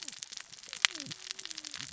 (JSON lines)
{"label": "biophony, cascading saw", "recorder": "SoundTrap 600 or HydroMoth"}